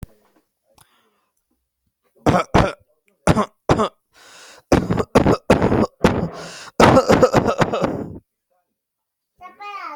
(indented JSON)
{
  "expert_labels": [
    {
      "quality": "poor",
      "cough_type": "unknown",
      "dyspnea": false,
      "wheezing": false,
      "stridor": false,
      "choking": false,
      "congestion": false,
      "nothing": true,
      "diagnosis": "healthy cough",
      "severity": "pseudocough/healthy cough"
    }
  ],
  "age": 60,
  "gender": "male",
  "respiratory_condition": false,
  "fever_muscle_pain": true,
  "status": "symptomatic"
}